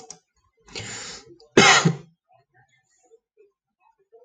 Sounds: Cough